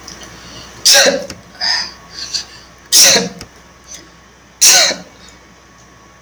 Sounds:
Sneeze